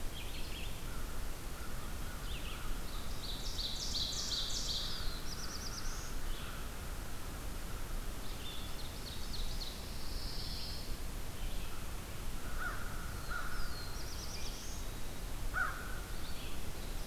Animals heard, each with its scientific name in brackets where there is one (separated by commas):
Ovenbird (Seiurus aurocapilla), Red-eyed Vireo (Vireo olivaceus), Pine Warbler (Setophaga pinus), Black-throated Blue Warbler (Setophaga caerulescens), American Crow (Corvus brachyrhynchos)